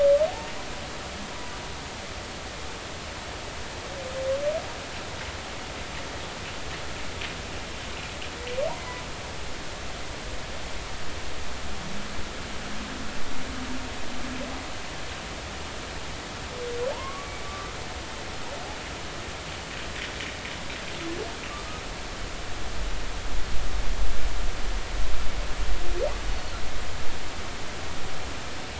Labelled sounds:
0.3	0.5	humpback whale, 0.80 to 0.96 kHz
8.7	9.0	humpback whale, 0.80 to 2.1 kHz
16.9	17.8	humpback whale, 0.83 to 2.3 kHz

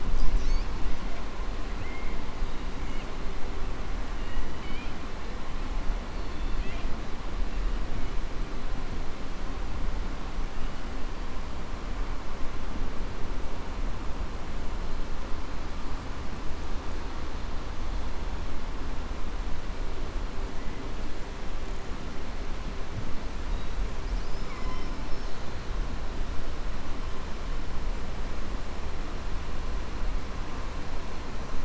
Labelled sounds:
1.7	2.1	killer whale, southern resident, 1.7 to 2.9 kHz
4.5	5.0	killer whale, southern resident, 1.5 to 4.5 kHz
6.1	6.9	killer whale, southern resident, 2.0 to 4.5 kHz
24.4	24.9	killer whale, southern resident, 1.0 to 4.1 kHz

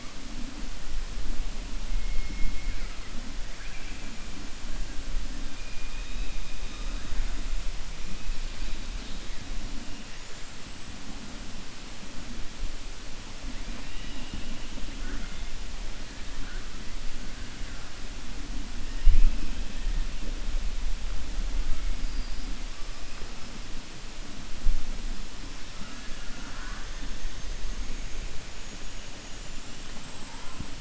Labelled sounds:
2.0	3.0	killer whale, 1.3 to 2.3 kHz

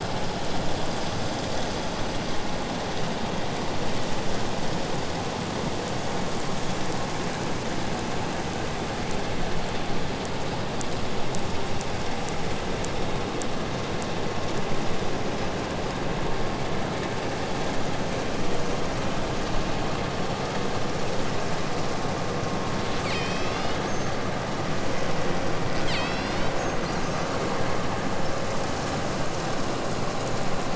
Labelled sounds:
22.6	24.2	killer whale, southern Alaska resident, 0.85 to 8.0 kHz
25.8	26.6	killer whale, southern Alaska resident, 0.74 to 8.0 kHz

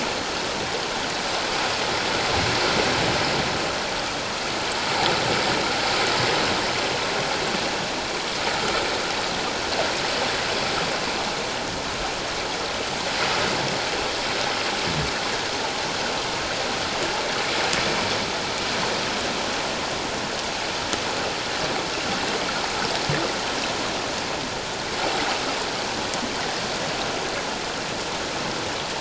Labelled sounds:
8.6	8.9	water noise, 1.2 to 1.6 kHz

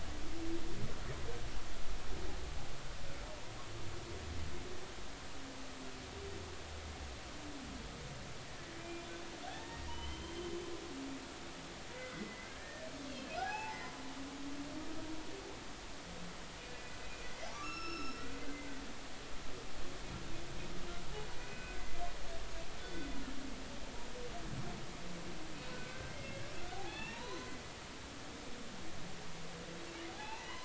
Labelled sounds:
8.8	9.0	humpback whale, 2.4 to 2.5 kHz
9.5	10.5	humpback whale, 0.80 to 3.2 kHz
11.9	13.9	humpback whale, 0.80 to 5.3 kHz
17.5	18.2	humpback whale, 1.1 to 5.5 kHz
21.3	21.8	humpback whale, 1.4 to 2.6 kHz
22.8	23.2	humpback whale, 3.4 to 3.6 kHz
25.7	26.4	humpback whale, 1.4 to 2.2 kHz
26.7	27.5	humpback whale, 0.80 to 4.2 kHz
30.1	30.6	humpback whale, 0.80 to 2.8 kHz

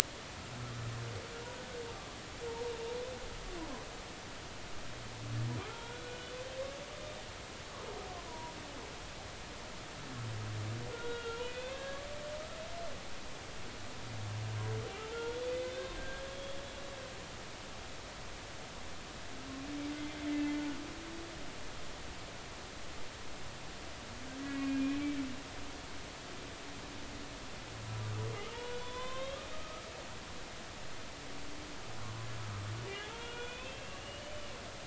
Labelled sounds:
2.5	2.7	humpback whale, 0.86 to 0.99 kHz
5.7	6.1	humpback whale, 3.2 to 3.5 kHz
8.3	8.5	humpback whale, 0.90 to 1.0 kHz
10.9	12.1	humpback whale, 1.0 to 2.9 kHz
15.1	15.4	humpback whale, 1.3 to 3.5 kHz
16.0	16.6	humpback whale, 1.5 to 3.4 kHz
19.9	20.3	humpback whale, 2.0 to 2.1 kHz
24.4	25.1	humpback whale, 1.9 to 2.6 kHz
28.5	29.9	humpback whale, 0.86 to 3.8 kHz
33.0	34.5	humpback whale, 0.80 to 3.6 kHz

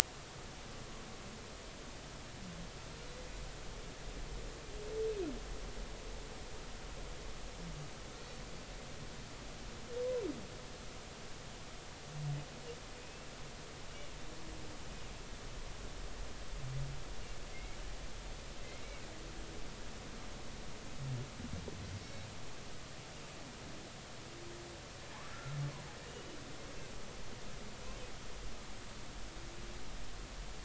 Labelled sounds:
13.0	13.3	humpback whale, 2.5 to 2.8 kHz
17.5	17.8	humpback whale, 2.0 to 2.3 kHz
18.6	19.0	humpback whale, 2.0 to 2.3 kHz
22.0	22.3	humpback whale, 3.8 to 4.0 kHz
26.1	26.4	humpback whale, 2.8 to 3.0 kHz

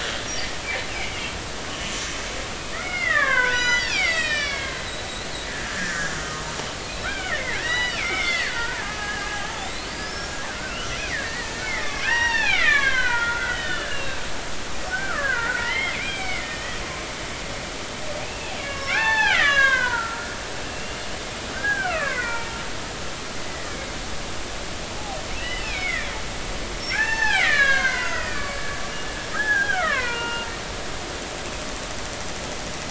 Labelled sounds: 0.9	1.2	killer whale, Bigg's (transient), 2.0 to 2.6 kHz
2.7	4.8	killer whale, Bigg's (transient), 0.90 to 7.9 kHz
5.5	6.4	killer whale, Bigg's (transient), 1.2 to 1.9 kHz
6.8	17.1	killer whale, Bigg's (transient), 0.83 to 5.7 kHz
18.2	20.4	killer whale, Bigg's (transient), 0.80 to 6.3 kHz
20.7	22.6	killer whale, Bigg's (transient), 0.86 to 3.1 kHz
23.7	24.0	killer whale, Bigg's (transient), 2.0 to 2.3 kHz
25.4	26.1	killer whale, Bigg's (transient), 1.7 to 2.8 kHz
26.9	28.6	killer whale, Bigg's (transient), 0.80 to 6.3 kHz
29.4	30.5	killer whale, Bigg's (transient), 0.80 to 2.9 kHz

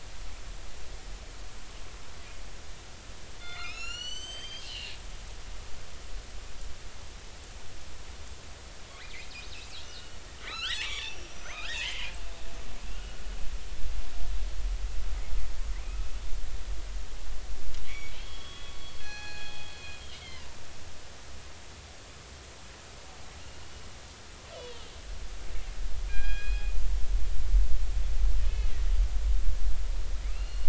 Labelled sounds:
3.4	4.9	killer whale, northern resident, 1.2 to 8.0 kHz
9.5	12.1	killer whale, northern resident, 1.1 to 6.4 kHz
12.9	13.3	killer whale, northern resident, 1.4 to 3.0 kHz
17.9	18.8	killer whale, northern resident, A clan, AA subclan, A01 pod, call N11, 1.1 to 3.5 kHz
19.0	19.7	killer whale, northern resident, G clan, call N24ii, 0.80 to 4.5 kHz
20.2	20.5	killer whale, northern resident, A clan, AA subclan, A01 pod, call N11, 1.8 to 2.3 kHz
24.5	24.9	killer whale, northern resident, A clan, AA subclan, A01 pod, call N03, 2.7 to 3.5 kHz
26.1	26.7	killer whale, northern resident, G clan, call N24ii, 1.5 to 5.0 kHz
30.3	30.6	killer whale, northern resident, A clan, call N07, 2.5 to 4.4 kHz

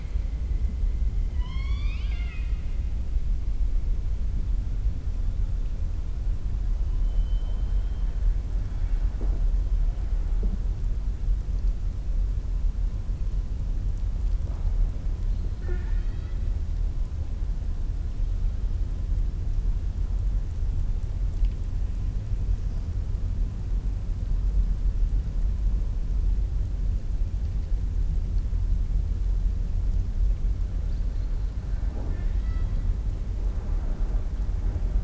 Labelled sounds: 1.3	2.7	killer whale, southern resident, 1.0 to 6.6 kHz
7.0	8.2	killer whale, southern resident, 2.6 to 4.1 kHz
15.5	16.4	killer whale, southern resident, 0.37 to 4.6 kHz
31.7	32.8	killer whale, southern resident, 0.28 to 5.2 kHz

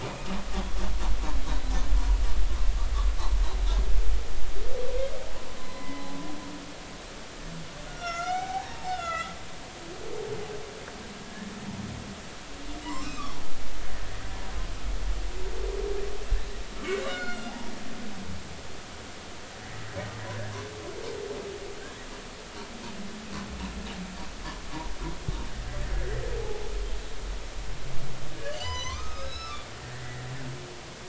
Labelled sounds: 5.6	6.0	humpback whale, 0.96 to 4.1 kHz
7.9	9.3	humpback whale, 0.80 to 6.5 kHz
11.2	11.5	humpback whale, 1.6 to 1.9 kHz
12.8	13.3	humpback whale, 0.90 to 7.6 kHz
17.1	17.7	humpback whale, 0.80 to 5.2 kHz
25.9	26.2	humpback whale, 1.6 to 2.0 kHz
28.3	29.7	humpback whale, 0.93 to 7.2 kHz

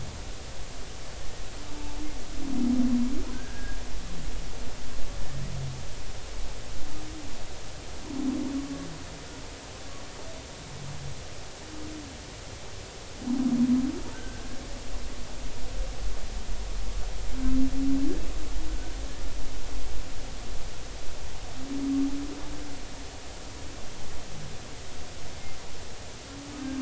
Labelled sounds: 3.3	3.8	humpback whale, 1.5 to 1.7 kHz
14.1	14.4	humpback whale, 1.4 to 1.6 kHz
18.7	18.9	humpback whale, 1.4 to 1.6 kHz

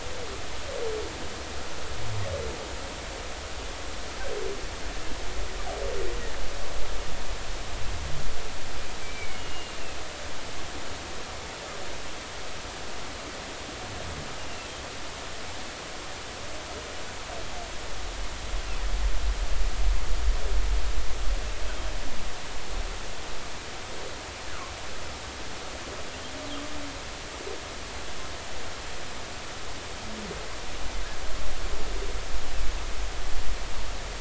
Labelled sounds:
9.0	9.8	humpback whale, 2.1 to 3.0 kHz

